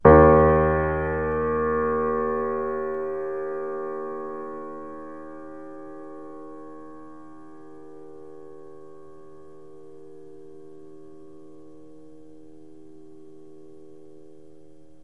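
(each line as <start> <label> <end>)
0.0 A loud piano note fades away. 15.0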